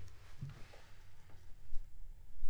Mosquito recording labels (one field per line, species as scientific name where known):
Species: Aedes aegypti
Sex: female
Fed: unfed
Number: one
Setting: cup